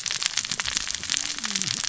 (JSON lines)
{"label": "biophony, cascading saw", "recorder": "SoundTrap 600 or HydroMoth"}